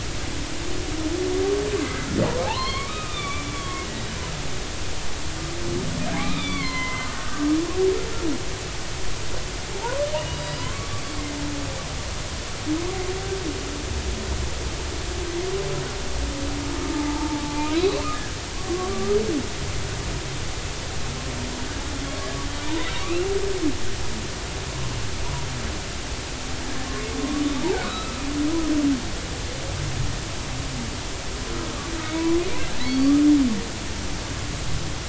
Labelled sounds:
2.4	3.8	humpback whale, 0.80 to 4.4 kHz
6.1	7.5	humpback whale, 0.93 to 3.8 kHz
9.7	11.0	humpback whale, 0.80 to 5.0 kHz
16.8	19.2	humpback whale, 0.83 to 2.7 kHz
23.0	23.3	humpback whale, 1.1 to 2.8 kHz
27.7	28.3	humpback whale, 1.1 to 1.6 kHz
32.0	32.4	humpback whale, 2.1 to 2.4 kHz
32.8	33.1	humpback whale, 4.4 to 4.6 kHz

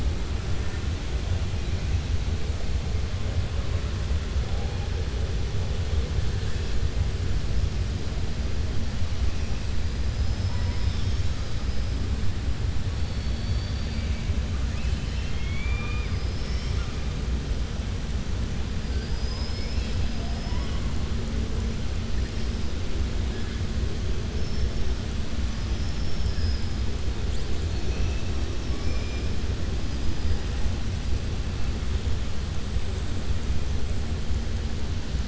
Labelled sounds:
13.0	14.2	killer whale, southern resident, 2.3 to 4.7 kHz
14.6	16.9	killer whale, southern resident, 0.97 to 6.3 kHz
18.8	20.7	killer whale, southern resident, 2.2 to 5.9 kHz
25.5	26.8	killer whale, southern resident, 4.9 to 6.0 kHz

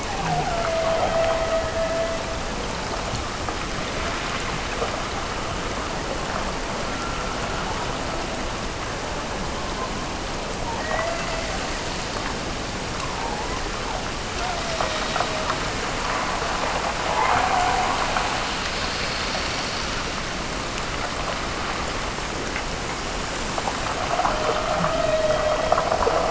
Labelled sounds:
0.0	2.4	killer whale, Bigg's (transient), Gulf of Alaska transient, 0.50 to 2.6 kHz
10.7	11.8	killer whale, Bigg's (transient), Gulf of Alaska transient, 0.40 to 2.1 kHz
14.3	15.7	killer whale, Bigg's (transient), Gulf of Alaska transient, 0.42 to 2.1 kHz
17.1	18.1	killer whale, Bigg's (transient), Gulf of Alaska transient, 0.57 to 2.2 kHz
24.1	26.2	killer whale, Bigg's (transient), Gulf of Alaska transient, 0.42 to 4.1 kHz

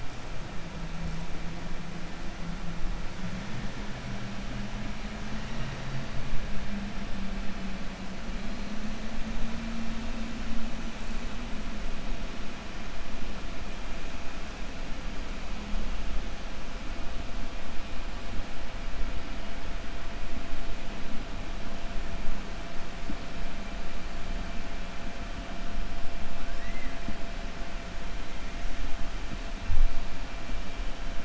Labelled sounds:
26.5	27.1	killer whale, 1.6 to 2.8 kHz

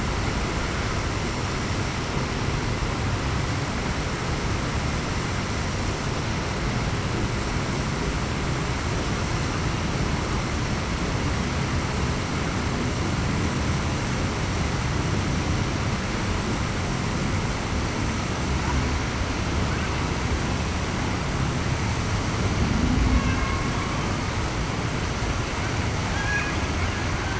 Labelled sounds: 26.1	26.5	killer whale, Bigg's (transient), 1.5 to 1.7 kHz

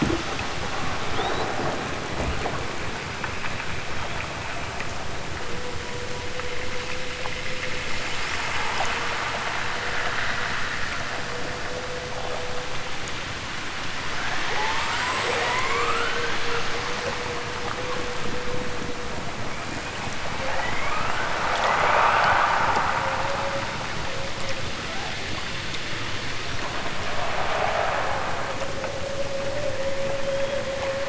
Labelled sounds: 14.4	16.6	killer whale, southern Alaska resident, 0.55 to 8.0 kHz
20.4	22.7	killer whale, southern Alaska resident, 0.32 to 8.0 kHz

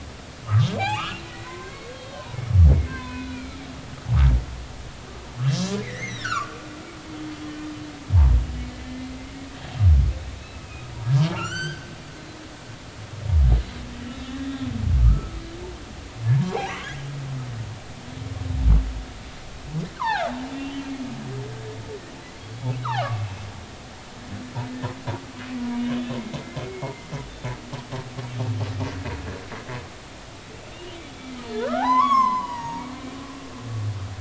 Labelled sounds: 0.8	3.6	humpback whale, 0.80 to 4.3 kHz
5.8	6.6	humpback whale, 1.0 to 6.5 kHz
10.4	10.9	humpback whale, 2.4 to 2.7 kHz
11.3	11.9	humpback whale, 1.2 to 8.0 kHz
14.1	15.4	humpback whale, 1.1 to 3.9 kHz
16.4	16.7	humpback whale, 0.80 to 4.1 kHz
19.9	20.9	humpback whale, 0.80 to 3.4 kHz
22.6	23.1	humpback whale, 0.80 to 2.3 kHz
26.6	27.1	humpback whale, 2.0 to 2.2 kHz
30.9	32.8	humpback whale, 0.80 to 6.8 kHz

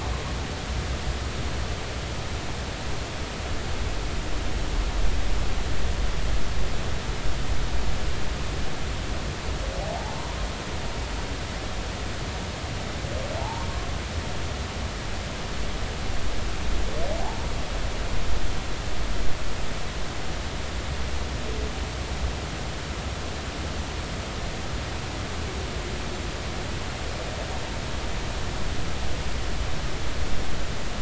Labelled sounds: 13.4	13.7	humpback whale, 0.80 to 1.1 kHz

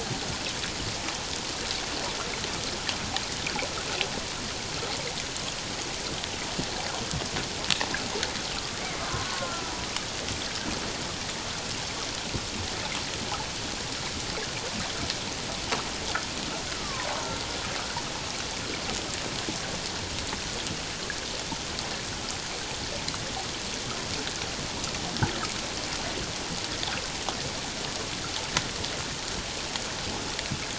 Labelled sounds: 8.5	9.6	killer whale, Bigg's (transient), 0.91 to 1.5 kHz
16.7	17.1	killer whale, Bigg's (transient), 0.94 to 1.4 kHz

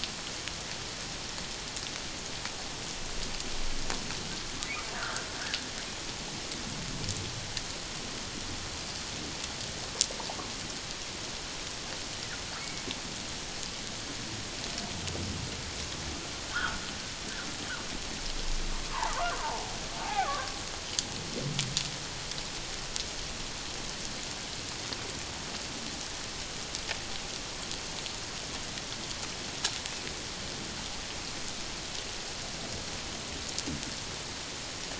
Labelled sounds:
4.9	5.3	humpback whale, 1.2 to 1.8 kHz
12.6	12.8	humpback whale, 2.0 to 2.3 kHz
16.5	16.8	humpback whale, 1.1 to 1.8 kHz
18.9	19.7	humpback whale, 0.78 to 1.4 kHz
20.0	20.5	humpback whale, 0.78 to 1.3 kHz

